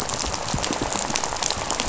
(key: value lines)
label: biophony, rattle
recorder: SoundTrap 500